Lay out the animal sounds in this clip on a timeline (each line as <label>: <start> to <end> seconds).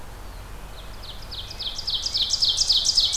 Eastern Wood-Pewee (Contopus virens): 0.0 to 0.6 seconds
Ovenbird (Seiurus aurocapilla): 0.4 to 3.2 seconds
American Robin (Turdus migratorius): 1.2 to 3.2 seconds